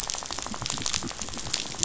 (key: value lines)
label: biophony, rattle
recorder: SoundTrap 500